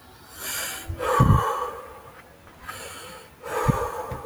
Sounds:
Sigh